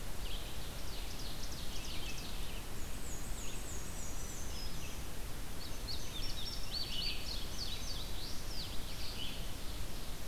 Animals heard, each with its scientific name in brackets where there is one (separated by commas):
Black-and-white Warbler (Mniotilta varia), Ovenbird (Seiurus aurocapilla), Red-eyed Vireo (Vireo olivaceus), Indigo Bunting (Passerina cyanea)